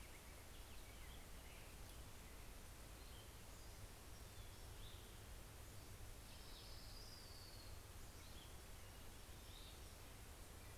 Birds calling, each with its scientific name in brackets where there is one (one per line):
Cassin's Vireo (Vireo cassinii)
Orange-crowned Warbler (Leiothlypis celata)